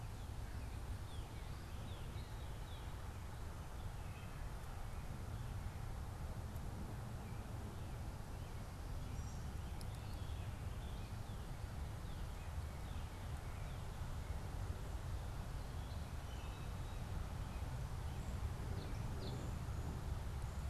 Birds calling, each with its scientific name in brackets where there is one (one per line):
Ovenbird (Seiurus aurocapilla)
Wood Thrush (Hylocichla mustelina)
American Robin (Turdus migratorius)
Northern Cardinal (Cardinalis cardinalis)